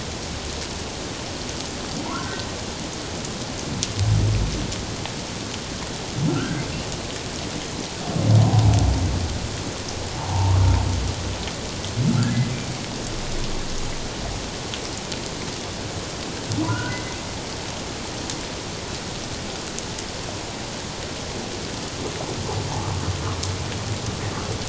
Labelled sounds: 2.0	2.5	humpback whale, 0.88 to 1.6 kHz
6.3	6.6	humpback whale, 1.2 to 1.6 kHz
10.2	10.6	humpback whale, 0.78 to 1.2 kHz
16.6	17.2	humpback whale, 0.91 to 2.1 kHz

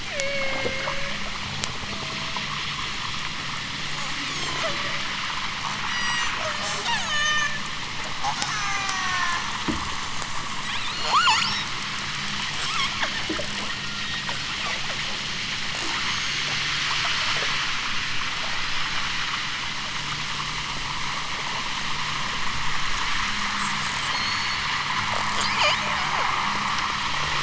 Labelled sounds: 0.0	1.2	killer whale, southern Alaska resident, 0.23 to 6.7 kHz
1.8	2.5	killer whale, southern Alaska resident, 0.28 to 0.92 kHz
4.1	5.1	killer whale, southern Alaska resident, 0.32 to 8.0 kHz
5.8	7.7	killer whale, southern Alaska resident, 0.32 to 8.0 kHz
8.5	9.5	killer whale, southern Alaska resident, 0.50 to 6.5 kHz
10.6	11.8	killer whale, southern Alaska resident, 0.41 to 8.0 kHz
12.5	13.1	killer whale, southern Alaska resident, 0.64 to 8.0 kHz
13.6	14.2	killer whale, southern Alaska resident, 0.60 to 4.2 kHz
24.1	24.7	killer whale, southern Alaska resident, 3.6 to 8.0 kHz
25.4	25.9	killer whale, southern Alaska resident, 2.3 to 8.0 kHz

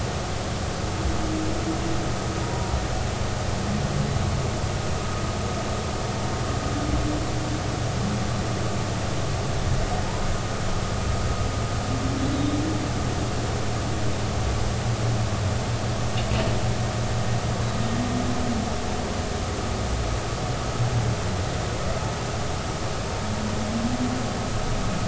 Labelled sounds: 2.4	2.7	humpback whale, 0.90 to 0.99 kHz

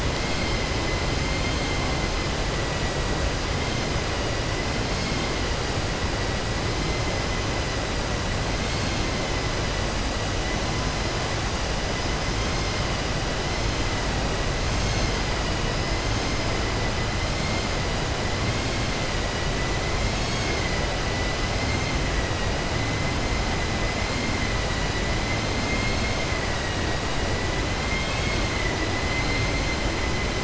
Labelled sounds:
25.6	26.2	vessel noise, 2.1 to 2.6 kHz
27.8	28.4	vessel noise, 1.7 to 4.8 kHz

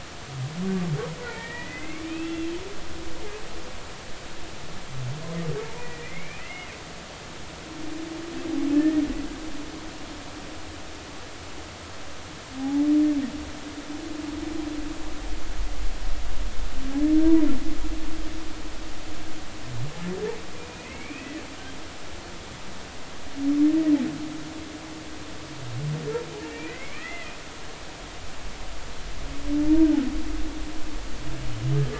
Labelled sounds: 1.2	2.5	humpback whale, 1.8 to 3.5 kHz
5.8	6.7	humpback whale, 1.9 to 2.9 kHz
8.7	9.0	humpback whale, 1.7 to 1.9 kHz
12.6	12.9	humpback whale, 0.80 to 0.90 kHz
20.7	21.4	humpback whale, 1.9 to 2.8 kHz
26.5	27.3	humpback whale, 1.8 to 2.7 kHz

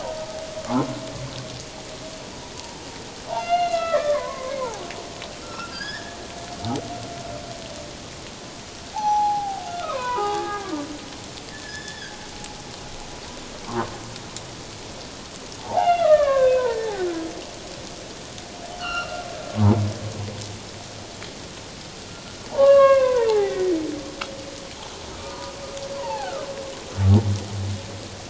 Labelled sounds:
0.7	1.0	humpback whale, 1.0 to 1.2 kHz
3.3	6.2	humpback whale, 0.78 to 5.5 kHz
8.9	10.7	humpback whale, 0.78 to 6.1 kHz
11.5	12.2	humpback whale, 1.5 to 5.3 kHz
13.6	13.9	humpback whale, 0.88 to 1.3 kHz
15.6	16.8	humpback whale, 0.78 to 3.6 kHz
18.7	19.2	humpback whale, 1.1 to 4.4 kHz
22.6	23.7	humpback whale, 0.78 to 2.8 kHz
25.2	26.5	humpback whale, 0.78 to 1.8 kHz

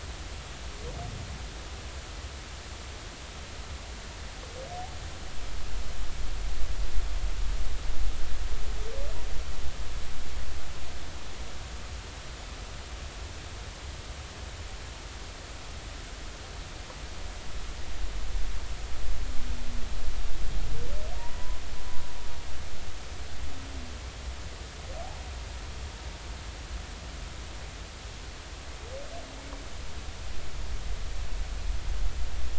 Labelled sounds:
21.1	21.6	humpback whale, 0.90 to 1.1 kHz

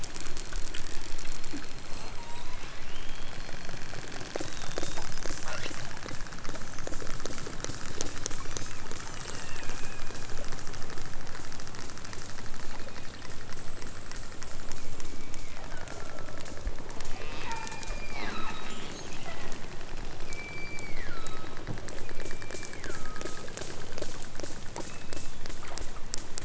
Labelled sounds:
2.1	2.6	killer whale, southern Alaska resident, 0.60 to 8.0 kHz
7.9	9.6	killer whale, southern Alaska resident, 1.7 to 8.0 kHz
12.6	13.2	killer whale, southern Alaska resident, 2.0 to 8.0 kHz
14.8	16.6	killer whale, southern Alaska resident, 0.92 to 2.6 kHz
17.3	18.7	killer whale, southern Alaska resident, 0.41 to 5.0 kHz
20.1	21.6	killer whale, southern Alaska resident, 1.1 to 5.2 kHz
22.0	23.5	killer whale, southern Alaska resident, 0.97 to 4.0 kHz
24.8	25.4	killer whale, southern Alaska resident, 1.9 to 4.1 kHz

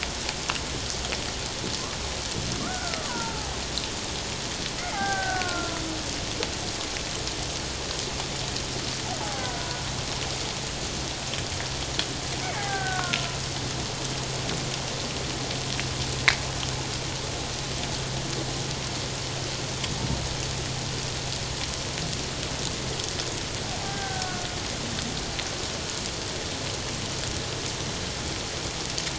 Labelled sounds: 2.6	3.5	killer whale, Bigg's (transient), call T08, 0.78 to 1.6 kHz
4.8	5.0	killer whale, Bigg's (transient), call T07, 2.0 to 2.2 kHz
4.9	5.8	killer whale, Bigg's (transient), 0.78 to 1.7 kHz
9.2	9.7	killer whale, Bigg's (transient), 0.78 to 1.6 kHz
12.4	13.3	killer whale, Bigg's (transient), 0.78 to 2.3 kHz
23.9	24.5	killer whale, Bigg's (transient), 1.4 to 1.7 kHz

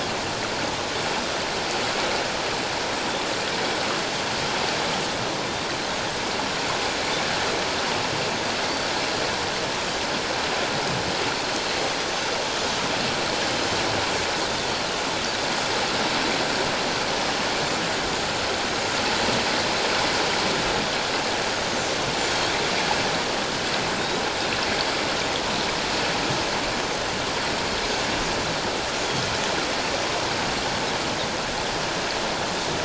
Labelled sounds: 22.3	22.6	Pacific white-sided dolphin, 3.2 to 3.6 kHz
24.0	24.3	Pacific white-sided dolphin, 3.6 to 4.0 kHz

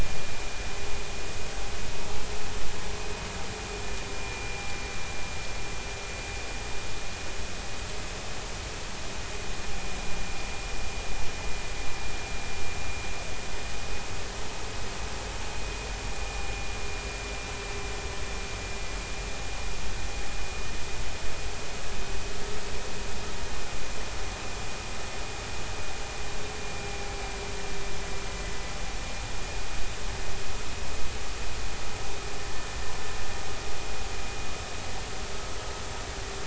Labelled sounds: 4.1	4.8	vessel noise, 2.3 to 2.4 kHz
16.1	16.5	vessel noise, 2.4 to 2.5 kHz

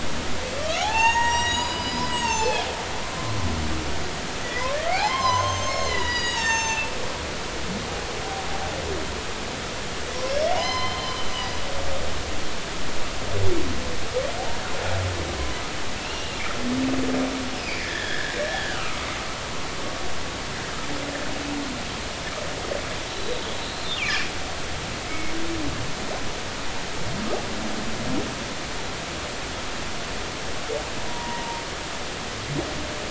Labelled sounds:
0.6	3.1	humpback whale, 0.80 to 7.8 kHz
4.4	6.9	humpback whale, 0.83 to 7.4 kHz
10.5	11.3	humpback whale, 0.93 to 5.2 kHz
16.0	16.4	humpback whale, 2.6 to 2.9 kHz
17.5	19.1	humpback whale, 1.1 to 3.6 kHz
23.1	23.4	humpback whale, 3.8 to 4.1 kHz
24.0	24.3	humpback whale, 2.2 to 2.9 kHz
25.0	25.3	humpback whale, 2.0 to 2.3 kHz
31.1	31.6	humpback whale, 0.90 to 0.99 kHz

